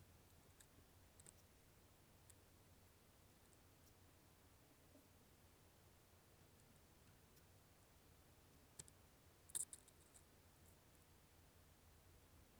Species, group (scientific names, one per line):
Leptophyes punctatissima
Orthoptera